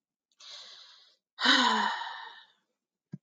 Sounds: Sigh